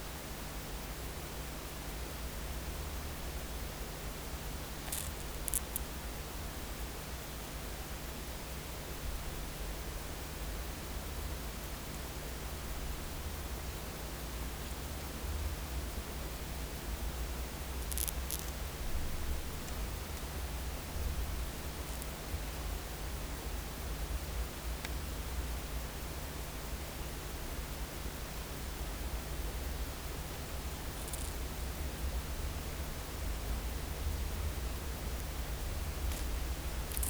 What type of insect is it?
orthopteran